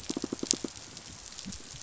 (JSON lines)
{"label": "biophony, pulse", "recorder": "SoundTrap 500"}